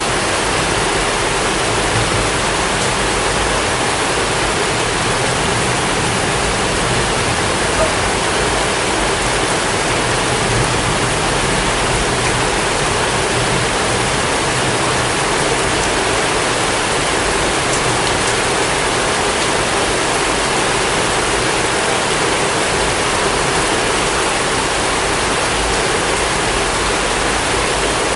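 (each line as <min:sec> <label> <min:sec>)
0:00.0 Heavy rain pouring down loudly and continuously. 0:28.2
0:07.7 A dog barks softly in the distance with a high-pitched tone. 0:07.9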